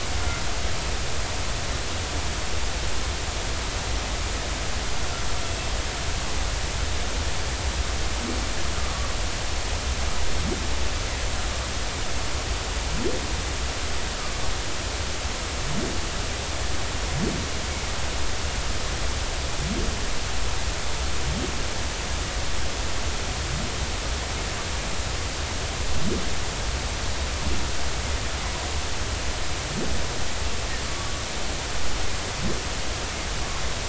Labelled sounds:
8.8	9.1	humpback whale, 1.1 to 1.3 kHz

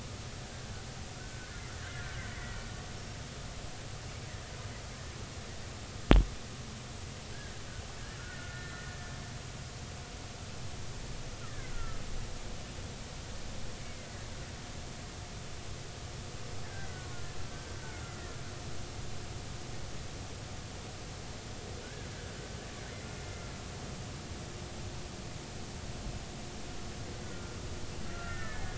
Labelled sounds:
1.2	2.2	killer whale, Bigg's (transient), 1.3 to 2.1 kHz
7.3	9.0	killer whale, Bigg's (transient), 1.3 to 4.0 kHz
11.7	12.0	killer whale, Bigg's (transient), 1.3 to 1.5 kHz
13.8	14.1	killer whale, Bigg's (transient), 2.0 to 2.3 kHz
16.7	17.1	killer whale, Bigg's (transient), 1.4 to 1.6 kHz
17.8	18.4	killer whale, Bigg's (transient), 1.3 to 2.1 kHz
27.2	28.7	killer whale, Bigg's (transient), 1.2 to 2.0 kHz

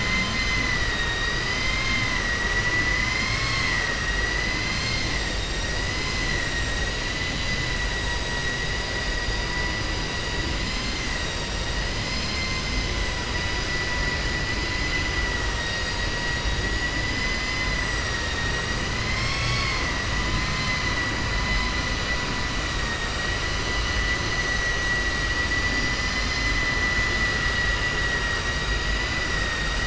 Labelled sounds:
0.8	3.9	vessel noise, 0.95 to 6.6 kHz
7.0	7.7	vessel noise, 2.0 to 4.8 kHz
14.5	16.5	vessel noise, 1.4 to 7.7 kHz
19.0	20.0	vessel noise, 1.1 to 7.7 kHz
20.2	20.8	vessel noise, 1.0 to 4.6 kHz
22.8	23.3	vessel noise, 0.91 to 4.7 kHz
25.7	26.7	vessel noise, 1.2 to 6.1 kHz
27.3	28.5	vessel noise, 0.96 to 3.0 kHz

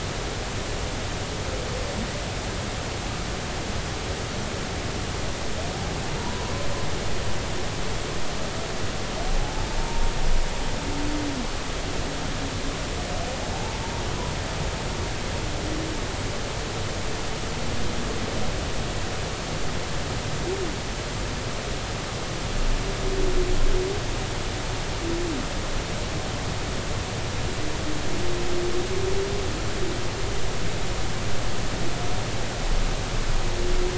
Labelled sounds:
6.2	6.5	humpback whale, 0.86 to 1.0 kHz
9.4	10.1	humpback whale, 0.80 to 0.96 kHz

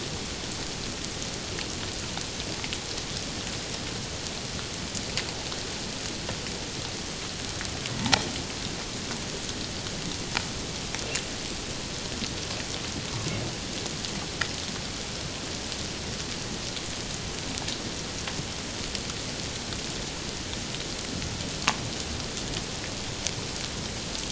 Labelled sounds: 8.0	8.2	humpback whale, 0.78 to 1.1 kHz

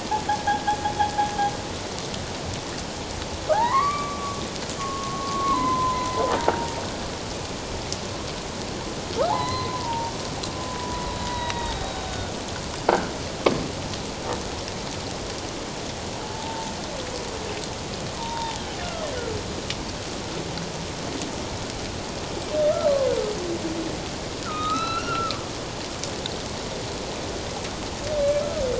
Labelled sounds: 0.5	0.8	humpback whale, 1.4 to 1.7 kHz
3.5	6.8	humpback whale, 0.78 to 2.4 kHz
9.3	10.1	humpback whale, 0.78 to 4.2 kHz
10.7	12.3	humpback whale, 0.78 to 3.9 kHz
16.2	16.7	humpback whale, 0.78 to 0.94 kHz
18.2	18.6	humpback whale, 0.81 to 3.8 kHz
24.4	25.4	humpback whale, 1.1 to 4.2 kHz

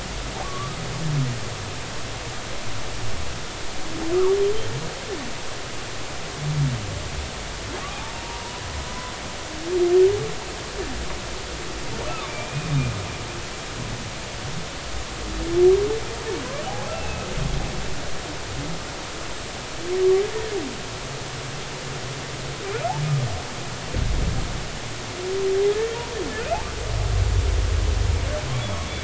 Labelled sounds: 0.4	0.8	humpback whale, 1.0 to 1.3 kHz
7.9	8.6	humpback whale, 0.80 to 1.0 kHz
8.9	9.1	humpback whale, 0.96 to 1.1 kHz
12.0	12.7	humpback whale, 1.0 to 2.6 kHz
16.7	17.3	humpback whale, 0.80 to 2.8 kHz
20.2	20.5	humpback whale, 1.6 to 1.9 kHz

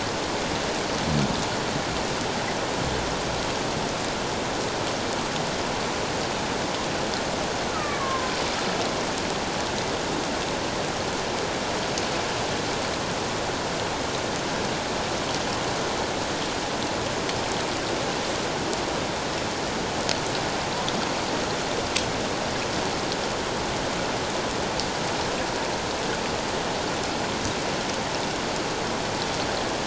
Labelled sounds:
7.7	8.3	killer whale, Bigg's (transient), 0.97 to 1.5 kHz

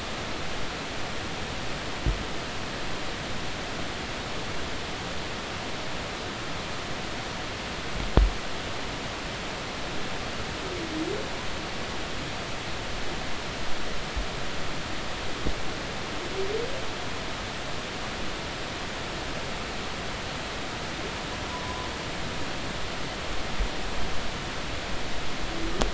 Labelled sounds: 21.5	21.9	humpback whale, 0.96 to 1.1 kHz

